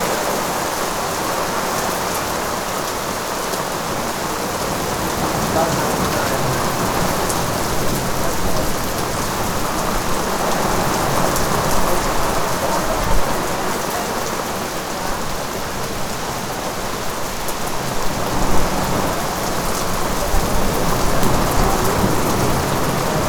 Is an umbrella needed here?
yes